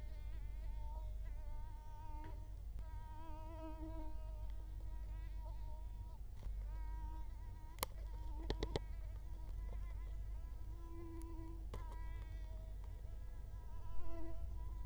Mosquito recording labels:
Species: Culex quinquefasciatus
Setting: cup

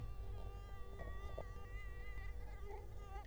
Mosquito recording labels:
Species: Culex quinquefasciatus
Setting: cup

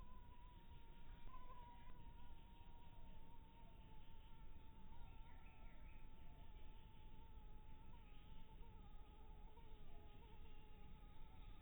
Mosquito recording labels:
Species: mosquito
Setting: cup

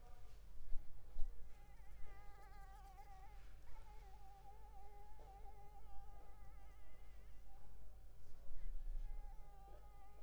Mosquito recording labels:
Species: Anopheles arabiensis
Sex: female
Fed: unfed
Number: one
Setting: cup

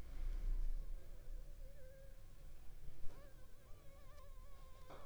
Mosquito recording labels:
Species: Anopheles funestus s.l.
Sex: female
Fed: unfed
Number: one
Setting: cup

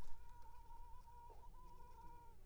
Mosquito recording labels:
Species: Culex pipiens complex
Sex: female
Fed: unfed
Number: one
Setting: cup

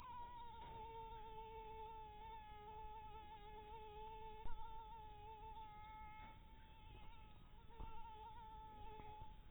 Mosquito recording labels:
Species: mosquito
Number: one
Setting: cup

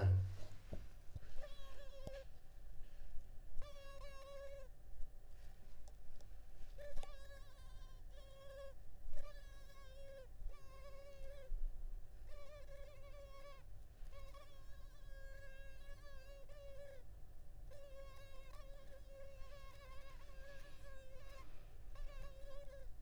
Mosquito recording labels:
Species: Culex pipiens complex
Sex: female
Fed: unfed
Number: one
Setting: cup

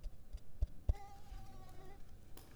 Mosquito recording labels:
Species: Mansonia africanus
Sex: female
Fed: unfed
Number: one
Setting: cup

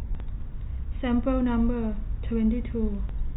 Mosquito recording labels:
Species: no mosquito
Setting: cup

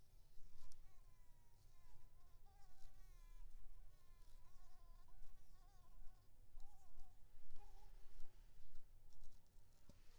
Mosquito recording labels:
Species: Anopheles maculipalpis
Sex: female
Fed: unfed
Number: one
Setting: cup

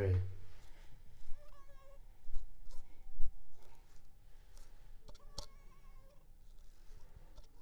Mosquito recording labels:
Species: Anopheles arabiensis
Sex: female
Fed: unfed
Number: one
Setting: cup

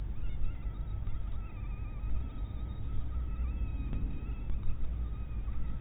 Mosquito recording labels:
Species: mosquito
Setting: cup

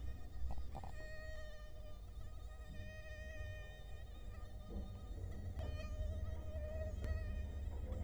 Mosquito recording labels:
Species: Culex quinquefasciatus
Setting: cup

